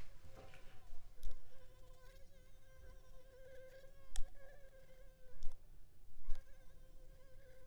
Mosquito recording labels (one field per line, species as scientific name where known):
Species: Anopheles arabiensis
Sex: female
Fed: unfed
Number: one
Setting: cup